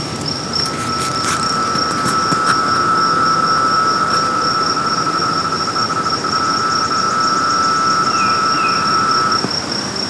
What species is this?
Magicicada septendecim